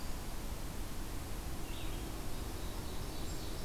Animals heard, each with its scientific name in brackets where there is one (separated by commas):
Ovenbird (Seiurus aurocapilla), Blue-headed Vireo (Vireo solitarius)